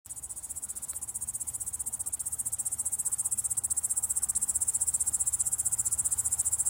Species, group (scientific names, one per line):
Tettigonia cantans
Orthoptera